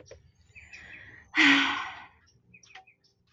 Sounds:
Sigh